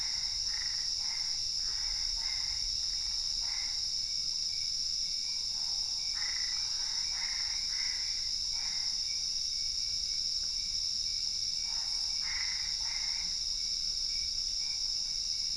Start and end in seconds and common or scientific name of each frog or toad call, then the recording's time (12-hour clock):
0.0	3.9	Boana albopunctata
5.8	9.3	Boana albopunctata
11.6	13.5	Boana albopunctata
1:30am